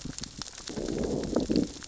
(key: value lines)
label: biophony, growl
recorder: SoundTrap 600 or HydroMoth